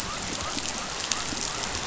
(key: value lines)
label: biophony
recorder: SoundTrap 500